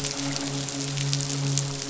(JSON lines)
{"label": "biophony, midshipman", "recorder": "SoundTrap 500"}